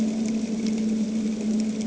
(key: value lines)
label: anthrophony, boat engine
recorder: HydroMoth